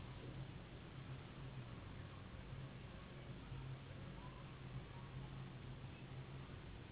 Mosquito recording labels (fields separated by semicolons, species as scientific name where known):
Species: Anopheles gambiae s.s.; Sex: female; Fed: unfed; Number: one; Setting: insect culture